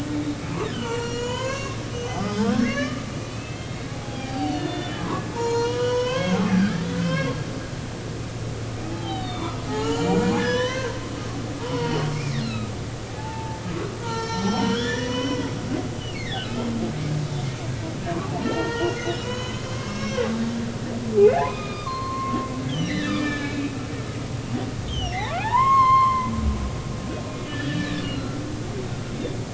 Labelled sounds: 1.0	7.4	humpback whale, 0.80 to 7.1 kHz
8.9	10.9	humpback whale, 0.80 to 7.3 kHz
11.6	12.7	humpback whale, 0.86 to 5.4 kHz
13.1	13.6	humpback whale, 0.80 to 0.96 kHz
14.0	16.5	humpback whale, 0.86 to 7.1 kHz
18.4	20.3	humpback whale, 0.90 to 6.8 kHz
21.2	23.6	humpback whale, 0.80 to 5.3 kHz
24.9	26.3	humpback whale, 0.80 to 6.6 kHz
27.5	28.4	humpback whale, 1.3 to 4.4 kHz

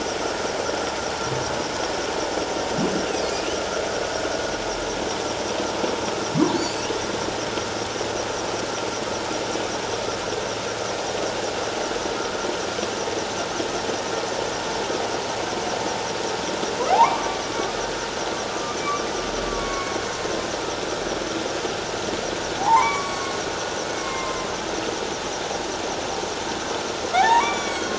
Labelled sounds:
6.5	6.9	humpback whale, 4.2 to 4.8 kHz
16.9	17.8	humpback whale, 0.78 to 1.3 kHz
18.5	18.8	humpback whale, 1.2 to 1.3 kHz
19.5	20.0	humpback whale, 1.0 to 2.3 kHz
22.6	24.5	humpback whale, 0.78 to 8.0 kHz
27.2	27.9	humpback whale, 0.78 to 8.0 kHz

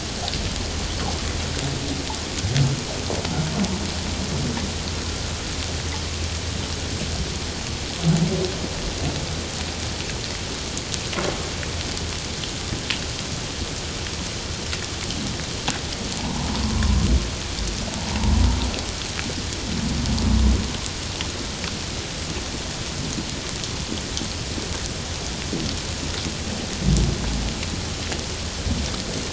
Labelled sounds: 16.2	16.5	humpback whale, 0.78 to 1.1 kHz

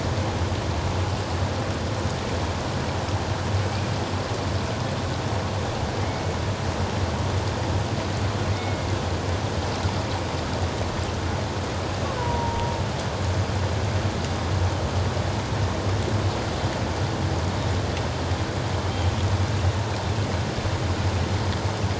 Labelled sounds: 3.6	3.9	killer whale, Bigg's (transient), 2.2 to 2.5 kHz
8.5	8.9	killer whale, Bigg's (transient), 2.0 to 2.2 kHz
12.2	12.8	killer whale, Bigg's (transient), 0.88 to 1.0 kHz

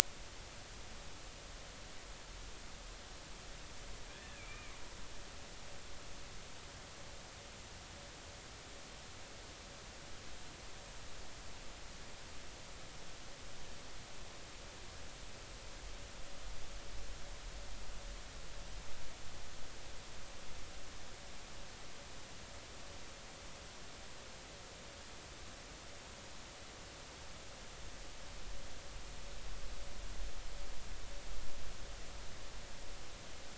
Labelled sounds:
4.1	4.8	killer whale, Bigg's (transient), 1.5 to 2.5 kHz

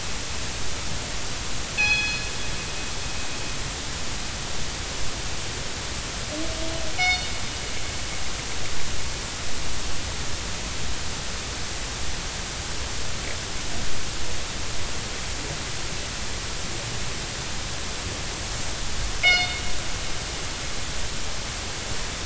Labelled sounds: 1.8	2.2	killer whale, northern resident, G clan, call N24ii, 1.6 to 5.2 kHz
6.9	7.3	killer whale, northern resident, G clan, call N24ii, 2.1 to 5.9 kHz
19.2	19.6	killer whale, northern resident, G clan, call N24ii, 2.0 to 5.2 kHz

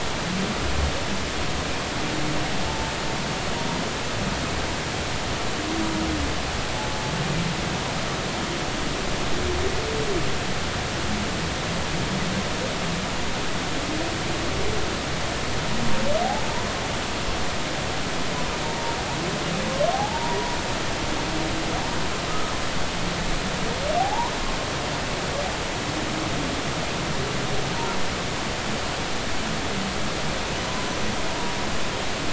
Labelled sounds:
2.7	3.8	humpback whale, 0.86 to 1.0 kHz
18.6	19.0	humpback whale, 0.86 to 0.99 kHz
19.9	20.4	humpback whale, 0.80 to 1.0 kHz
22.3	22.5	humpback whale, 1.2 to 1.4 kHz
24.0	24.3	humpback whale, 0.80 to 1.1 kHz
30.9	31.1	humpback whale, 5.8 to 6.0 kHz

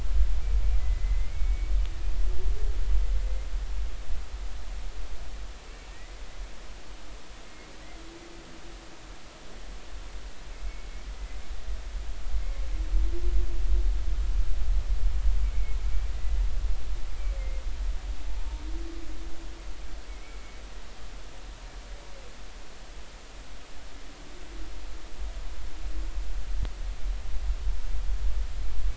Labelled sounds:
0.8	1.7	humpback whale, 1.9 to 2.3 kHz
5.9	6.2	humpback whale, 1.8 to 2.1 kHz
7.5	7.7	humpback whale, 2.1 to 2.2 kHz
10.5	11.4	humpback whale, 2.0 to 2.3 kHz
12.4	12.6	humpback whale, 2.0 to 2.2 kHz
15.4	16.4	humpback whale, 1.9 to 2.3 kHz
20.1	20.6	humpback whale, 2.1 to 2.3 kHz

